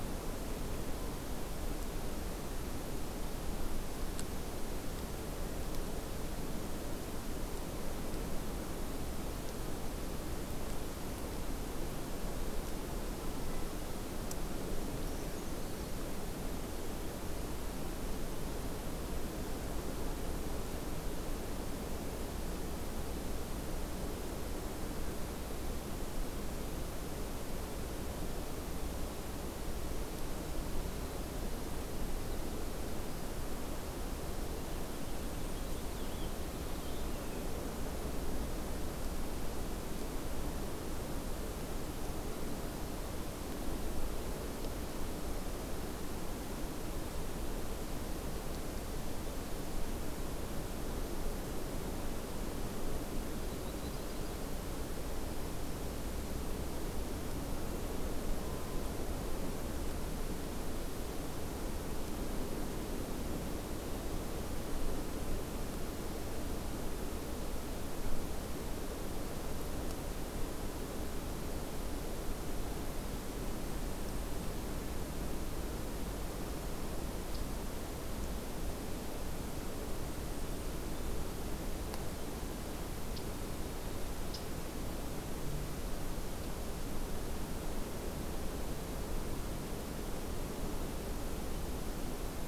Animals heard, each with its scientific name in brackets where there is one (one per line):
Blackpoll Warbler (Setophaga striata)
Purple Finch (Haemorhous purpureus)
Brown Creeper (Certhia americana)
Yellow-rumped Warbler (Setophaga coronata)